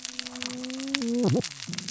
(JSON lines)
{"label": "biophony, cascading saw", "recorder": "SoundTrap 600 or HydroMoth"}